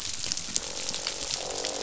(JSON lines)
{"label": "biophony, croak", "recorder": "SoundTrap 500"}